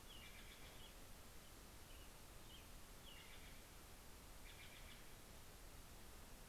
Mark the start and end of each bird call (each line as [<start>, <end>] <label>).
[0.00, 1.11] Steller's Jay (Cyanocitta stelleri)
[0.00, 3.71] American Robin (Turdus migratorius)
[2.51, 5.31] Steller's Jay (Cyanocitta stelleri)